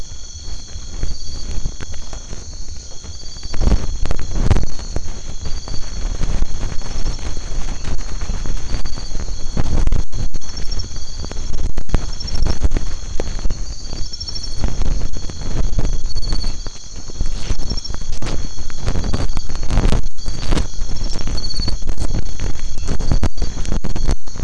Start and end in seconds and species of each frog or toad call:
7.6	8.4	Boana albomarginata
13.4	13.6	Boana albomarginata
16.3	17.5	Boana albomarginata
22.6	23.0	Boana albomarginata

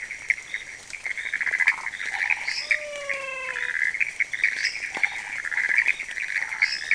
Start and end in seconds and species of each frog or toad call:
1.6	1.9	Phyllomedusa sauvagii
2.1	2.5	Boana raniceps
2.4	2.8	Dendropsophus minutus
2.6	3.8	Physalaemus albonotatus
4.5	4.9	Dendropsophus minutus
4.9	6.8	Boana raniceps
6.5	6.9	Dendropsophus minutus

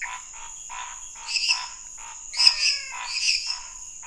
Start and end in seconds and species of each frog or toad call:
0.0	0.1	Pithecopus azureus
0.0	4.0	Dendropsophus minutus
0.0	4.0	Scinax fuscovarius
2.3	3.3	Physalaemus albonotatus

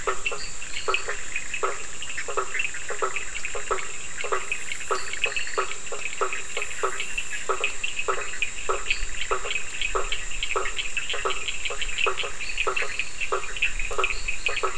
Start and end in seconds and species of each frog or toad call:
0.0	14.7	Boana bischoffi
0.0	14.7	Boana faber
0.0	14.7	Sphaenorhynchus surdus
0.3	1.1	Boana leptolineata
4.9	5.9	Boana leptolineata
8.9	9.0	Boana leptolineata
12.4	14.7	Boana leptolineata

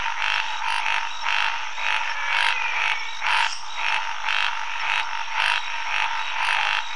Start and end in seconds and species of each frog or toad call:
0.0	6.9	Scinax fuscovarius
1.8	3.4	Physalaemus albonotatus
3.4	3.8	Dendropsophus minutus

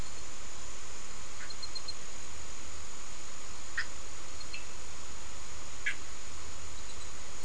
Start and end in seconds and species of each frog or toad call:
3.4	4.4	Boana bischoffi
4.4	4.9	Sphaenorhynchus surdus
5.6	6.3	Boana bischoffi

